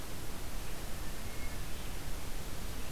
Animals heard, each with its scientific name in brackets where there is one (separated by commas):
Hermit Thrush (Catharus guttatus)